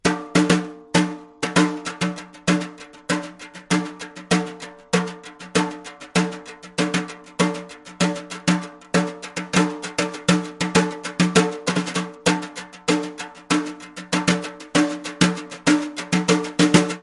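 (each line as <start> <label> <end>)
0.0 A person is playing drums rhythmically with brush sticks. 17.0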